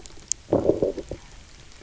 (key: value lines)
label: biophony, low growl
recorder: SoundTrap 300